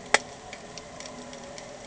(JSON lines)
{"label": "anthrophony, boat engine", "recorder": "HydroMoth"}